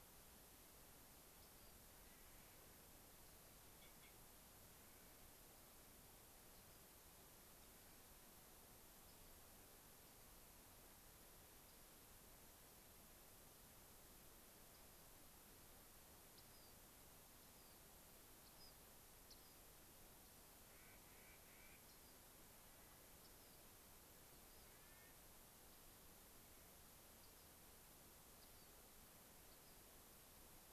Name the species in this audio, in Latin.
Salpinctes obsoletus, Nucifraga columbiana